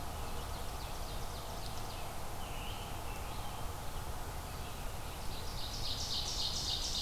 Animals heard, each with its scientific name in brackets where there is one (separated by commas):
Great Crested Flycatcher (Myiarchus crinitus), Red-eyed Vireo (Vireo olivaceus), Ovenbird (Seiurus aurocapilla)